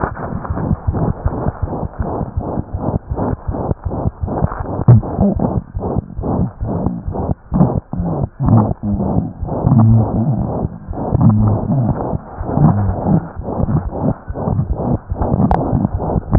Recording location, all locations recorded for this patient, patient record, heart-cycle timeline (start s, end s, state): aortic valve (AV)
aortic valve (AV)+mitral valve (MV)
#Age: Infant
#Sex: Male
#Height: 54.0 cm
#Weight: 3.7 kg
#Pregnancy status: False
#Murmur: Present
#Murmur locations: aortic valve (AV)+mitral valve (MV)
#Most audible location: aortic valve (AV)
#Systolic murmur timing: Holosystolic
#Systolic murmur shape: Plateau
#Systolic murmur grading: I/VI
#Systolic murmur pitch: High
#Systolic murmur quality: Harsh
#Diastolic murmur timing: nan
#Diastolic murmur shape: nan
#Diastolic murmur grading: nan
#Diastolic murmur pitch: nan
#Diastolic murmur quality: nan
#Outcome: Abnormal
#Campaign: 2015 screening campaign
0.00	1.57	unannotated
1.57	1.70	S1
1.70	1.77	systole
1.77	1.90	S2
1.90	1.96	diastole
1.96	2.05	S1
2.05	2.18	systole
2.18	2.26	S2
2.26	2.34	diastole
2.34	2.41	S1
2.41	2.55	systole
2.55	2.63	S2
2.63	2.70	diastole
2.70	2.80	S1
2.80	2.91	systole
2.91	2.99	S2
2.99	3.09	diastole
3.09	3.17	S1
3.17	3.30	systole
3.30	3.36	S2
3.36	3.46	diastole
3.46	3.54	S1
3.54	3.68	systole
3.68	3.74	S2
3.74	3.85	diastole
3.85	3.92	S1
3.92	4.04	systole
4.04	4.13	S2
4.13	4.20	diastole
4.20	4.28	S1
4.28	16.38	unannotated